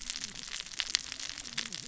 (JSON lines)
{"label": "biophony, cascading saw", "recorder": "SoundTrap 600 or HydroMoth"}